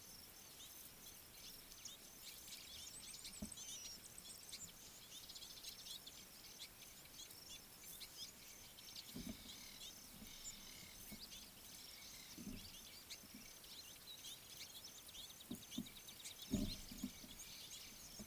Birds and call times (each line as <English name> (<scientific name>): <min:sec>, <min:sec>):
Red-billed Firefinch (Lagonosticta senegala): 0:03.3, 0:14.3
Mariqua Sunbird (Cinnyris mariquensis): 0:05.6
Ring-necked Dove (Streptopelia capicola): 0:10.7